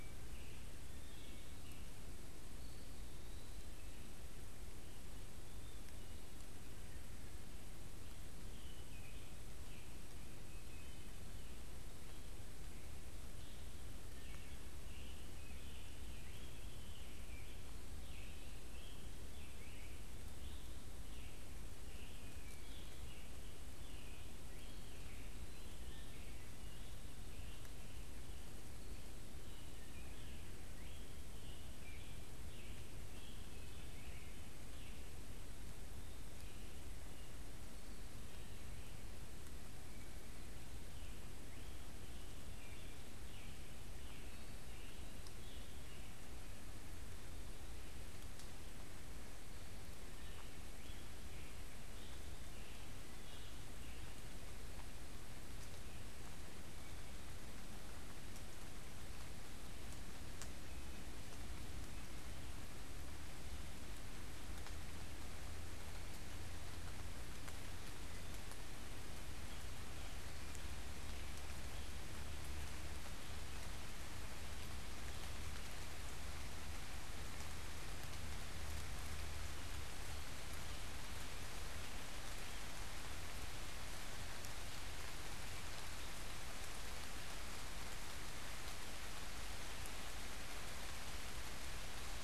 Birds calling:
Scarlet Tanager (Piranga olivacea), Eastern Wood-Pewee (Contopus virens), Wood Thrush (Hylocichla mustelina)

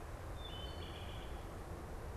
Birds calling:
Wood Thrush (Hylocichla mustelina)

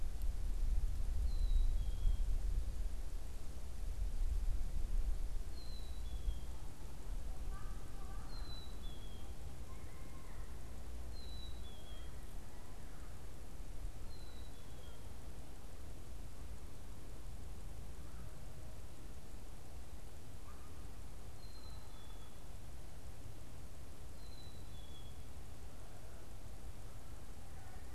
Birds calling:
Black-capped Chickadee (Poecile atricapillus)

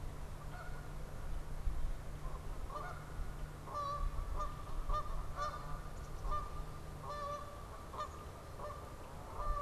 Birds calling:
Black-capped Chickadee (Poecile atricapillus), unidentified bird, Canada Goose (Branta canadensis)

